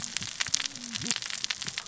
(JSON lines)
{"label": "biophony, cascading saw", "recorder": "SoundTrap 600 or HydroMoth"}